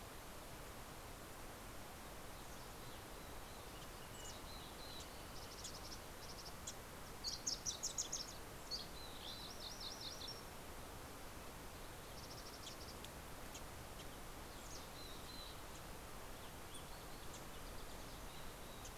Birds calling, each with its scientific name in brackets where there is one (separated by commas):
MacGillivray's Warbler (Geothlypis tolmiei), Mountain Chickadee (Poecile gambeli), Wilson's Warbler (Cardellina pusilla)